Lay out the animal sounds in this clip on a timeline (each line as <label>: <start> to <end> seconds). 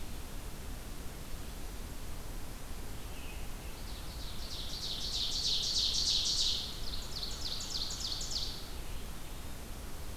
American Robin (Turdus migratorius): 2.9 to 4.1 seconds
Ovenbird (Seiurus aurocapilla): 3.7 to 8.7 seconds